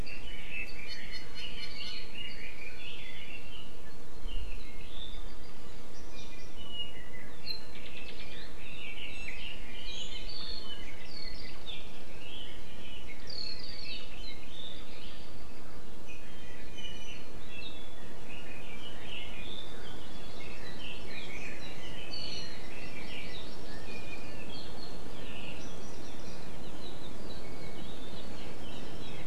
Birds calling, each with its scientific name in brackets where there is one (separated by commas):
Red-billed Leiothrix (Leiothrix lutea), Apapane (Himatione sanguinea), Iiwi (Drepanis coccinea), Hawaii Amakihi (Chlorodrepanis virens)